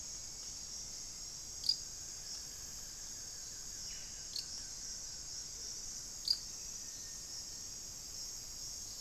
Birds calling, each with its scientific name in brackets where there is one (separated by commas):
Hauxwell's Thrush (Turdus hauxwelli), Buff-throated Woodcreeper (Xiphorhynchus guttatus), unidentified bird